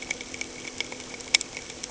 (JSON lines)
{"label": "anthrophony, boat engine", "recorder": "HydroMoth"}